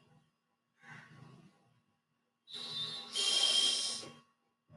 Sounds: Sniff